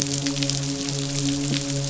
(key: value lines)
label: biophony, midshipman
recorder: SoundTrap 500